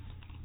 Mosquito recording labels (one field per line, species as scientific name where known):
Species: mosquito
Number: one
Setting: cup